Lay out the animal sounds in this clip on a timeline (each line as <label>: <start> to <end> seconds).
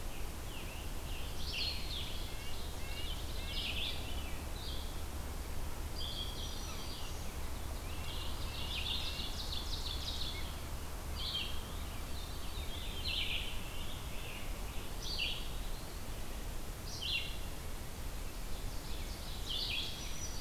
Scarlet Tanager (Piranga olivacea): 0.0 to 2.1 seconds
Red-eyed Vireo (Vireo olivaceus): 0.0 to 20.4 seconds
Ovenbird (Seiurus aurocapilla): 1.7 to 3.6 seconds
Red-breasted Nuthatch (Sitta canadensis): 2.0 to 4.1 seconds
Black-throated Green Warbler (Setophaga virens): 6.0 to 7.5 seconds
Ovenbird (Seiurus aurocapilla): 8.0 to 10.4 seconds
Veery (Catharus fuscescens): 12.0 to 13.3 seconds
Scarlet Tanager (Piranga olivacea): 13.0 to 15.0 seconds
Eastern Wood-Pewee (Contopus virens): 15.2 to 16.1 seconds
Ovenbird (Seiurus aurocapilla): 18.2 to 19.9 seconds